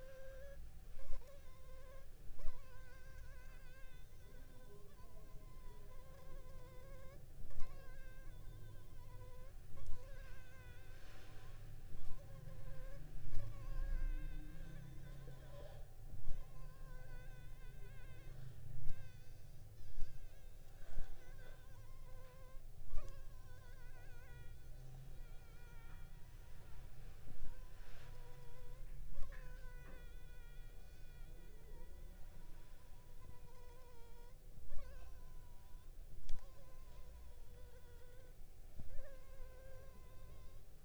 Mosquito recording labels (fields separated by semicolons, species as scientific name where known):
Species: Anopheles funestus s.s.; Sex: female; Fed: unfed; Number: one; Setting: cup